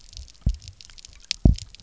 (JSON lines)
{"label": "biophony, double pulse", "recorder": "SoundTrap 300"}